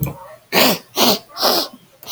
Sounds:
Sniff